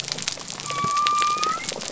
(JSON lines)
{"label": "biophony", "recorder": "SoundTrap 300"}